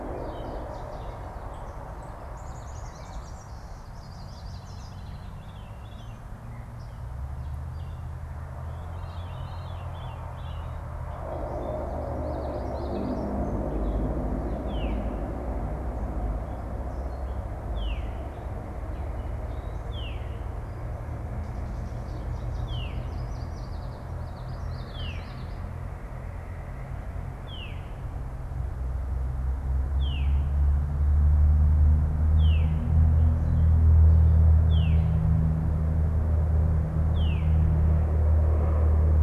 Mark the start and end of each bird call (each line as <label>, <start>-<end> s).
Chestnut-sided Warbler (Setophaga pensylvanica), 0.0-1.5 s
Blue-winged Warbler (Vermivora cyanoptera), 2.2-3.8 s
Yellow Warbler (Setophaga petechia), 3.6-4.9 s
Veery (Catharus fuscescens), 4.3-6.4 s
Veery (Catharus fuscescens), 8.7-11.0 s
Common Yellowthroat (Geothlypis trichas), 12.2-13.5 s
Veery (Catharus fuscescens), 14.5-37.8 s
Chestnut-sided Warbler (Setophaga pensylvanica), 21.9-23.0 s
Yellow Warbler (Setophaga petechia), 22.8-24.1 s
Common Yellowthroat (Geothlypis trichas), 24.0-25.6 s